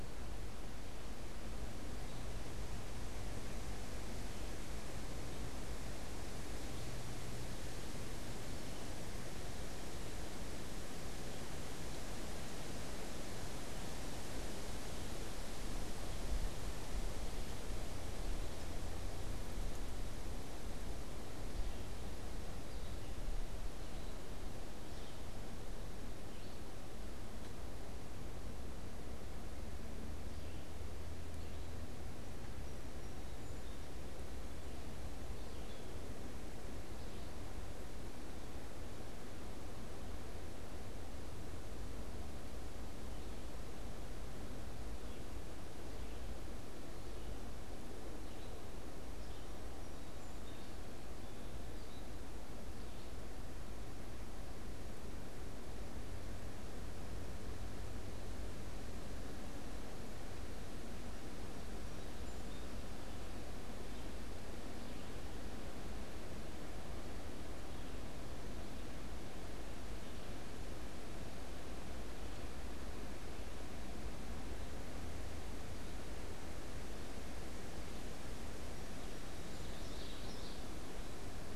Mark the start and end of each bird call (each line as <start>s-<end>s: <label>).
21.3s-37.7s: Red-eyed Vireo (Vireo olivaceus)
48.9s-51.2s: Song Sparrow (Melospiza melodia)
63.8s-78.6s: Red-eyed Vireo (Vireo olivaceus)
78.2s-79.9s: Song Sparrow (Melospiza melodia)
79.1s-80.9s: Common Yellowthroat (Geothlypis trichas)